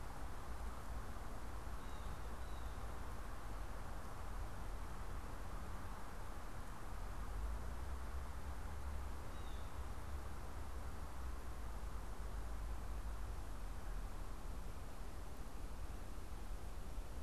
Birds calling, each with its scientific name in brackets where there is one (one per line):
Blue Jay (Cyanocitta cristata)